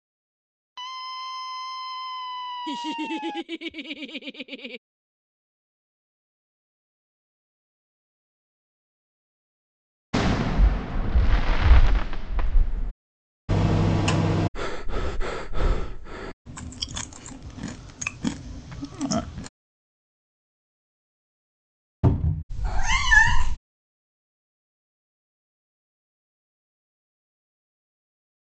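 At 0.74 seconds, someone screams. Over it, at 2.64 seconds, laughter can be heard. Then at 10.13 seconds, you can hear fireworks. Next, at 13.48 seconds, there is the sound of a microwave oven. After that, at 14.54 seconds, someone breathes. Afterwards, at 16.45 seconds, someone chews. Then at 22.03 seconds, a cupboard opens or closes. Next, at 22.49 seconds, a cat meows.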